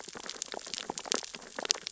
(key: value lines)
label: biophony, sea urchins (Echinidae)
recorder: SoundTrap 600 or HydroMoth